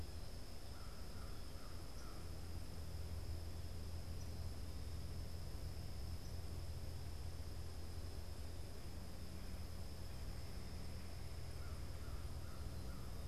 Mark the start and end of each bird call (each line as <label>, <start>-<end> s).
unidentified bird, 0.0-4.7 s
American Crow (Corvus brachyrhynchos), 0.4-2.5 s
American Crow (Corvus brachyrhynchos), 11.4-13.2 s